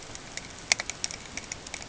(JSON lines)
{"label": "ambient", "recorder": "HydroMoth"}